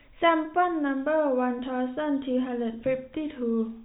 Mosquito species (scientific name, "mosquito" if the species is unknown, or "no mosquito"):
no mosquito